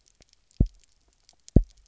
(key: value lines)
label: biophony, double pulse
recorder: SoundTrap 300